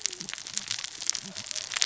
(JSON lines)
{"label": "biophony, cascading saw", "recorder": "SoundTrap 600 or HydroMoth"}